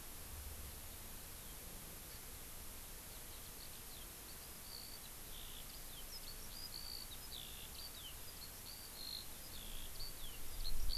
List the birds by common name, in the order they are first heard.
Hawaii Amakihi, Eurasian Skylark